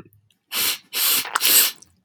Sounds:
Sniff